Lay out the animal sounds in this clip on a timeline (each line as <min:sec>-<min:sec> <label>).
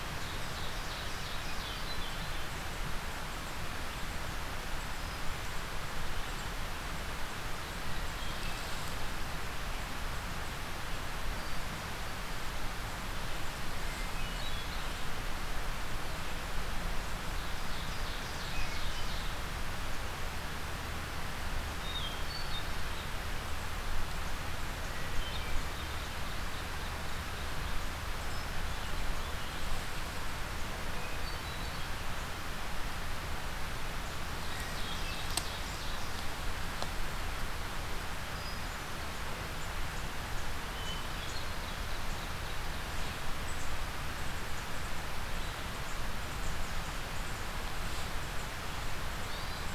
0:00.0-0:01.9 Ovenbird (Seiurus aurocapilla)
0:01.6-0:02.5 Hermit Thrush (Catharus guttatus)
0:07.9-0:08.8 Hermit Thrush (Catharus guttatus)
0:13.8-0:14.9 Hermit Thrush (Catharus guttatus)
0:17.3-0:19.4 Ovenbird (Seiurus aurocapilla)
0:21.8-0:22.8 Hermit Thrush (Catharus guttatus)
0:25.0-0:25.8 Hermit Thrush (Catharus guttatus)
0:30.7-0:31.8 Hermit Thrush (Catharus guttatus)
0:34.0-0:36.1 Ovenbird (Seiurus aurocapilla)
0:38.1-0:39.1 Hermit Thrush (Catharus guttatus)
0:40.5-0:41.7 Hermit Thrush (Catharus guttatus)
0:49.0-0:49.7 Yellow-bellied Sapsucker (Sphyrapicus varius)